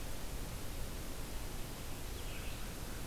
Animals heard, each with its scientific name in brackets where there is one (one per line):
Red-eyed Vireo (Vireo olivaceus)